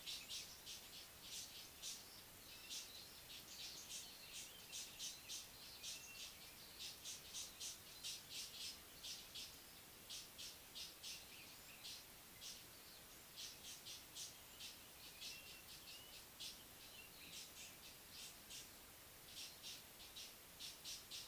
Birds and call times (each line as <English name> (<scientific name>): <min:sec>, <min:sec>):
Mocking Cliff-Chat (Thamnolaea cinnamomeiventris): 0:01.1, 0:15.5